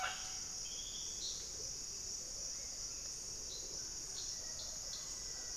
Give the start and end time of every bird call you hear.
0.0s-5.6s: Mealy Parrot (Amazona farinosa)
2.3s-5.6s: White-rumped Sirystes (Sirystes albocinereus)
3.8s-5.6s: Black-faced Antthrush (Formicarius analis)

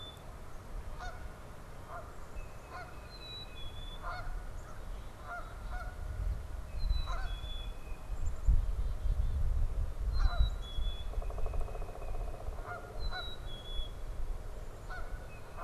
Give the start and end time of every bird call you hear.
0.0s-3.3s: Canada Goose (Branta canadensis)
2.2s-3.9s: Tufted Titmouse (Baeolophus bicolor)
2.8s-4.1s: Black-capped Chickadee (Poecile atricapillus)
3.9s-15.6s: Canada Goose (Branta canadensis)
4.4s-6.0s: Black-capped Chickadee (Poecile atricapillus)
4.5s-5.1s: American Crow (Corvus brachyrhynchos)
6.5s-9.5s: Black-capped Chickadee (Poecile atricapillus)
6.6s-8.3s: Tufted Titmouse (Baeolophus bicolor)
10.0s-11.2s: Black-capped Chickadee (Poecile atricapillus)
10.7s-12.4s: Tufted Titmouse (Baeolophus bicolor)
11.0s-13.5s: Pileated Woodpecker (Dryocopus pileatus)
12.8s-14.0s: Black-capped Chickadee (Poecile atricapillus)
15.1s-15.6s: Tufted Titmouse (Baeolophus bicolor)

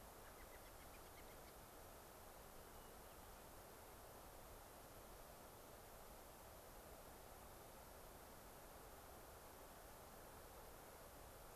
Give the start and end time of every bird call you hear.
0.0s-1.6s: American Robin (Turdus migratorius)
2.5s-3.5s: Hermit Thrush (Catharus guttatus)

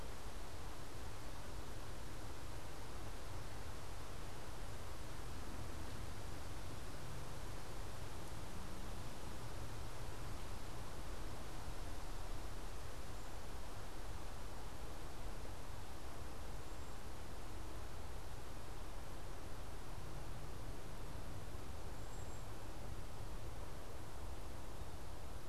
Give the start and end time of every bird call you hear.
21.9s-22.6s: Cedar Waxwing (Bombycilla cedrorum)

